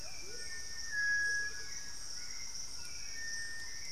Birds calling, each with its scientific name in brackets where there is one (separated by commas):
Amazonian Motmot (Momotus momota), Cinereous Tinamou (Crypturellus cinereus), Hauxwell's Thrush (Turdus hauxwelli), Black-faced Antthrush (Formicarius analis), White-throated Toucan (Ramphastos tucanus)